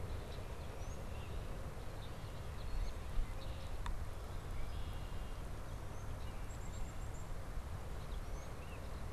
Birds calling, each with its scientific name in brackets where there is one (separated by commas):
Tufted Titmouse (Baeolophus bicolor), Black-capped Chickadee (Poecile atricapillus), Red-winged Blackbird (Agelaius phoeniceus)